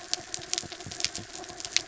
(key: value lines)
label: anthrophony, mechanical
recorder: SoundTrap 300